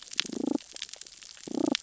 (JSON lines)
{"label": "biophony, damselfish", "recorder": "SoundTrap 600 or HydroMoth"}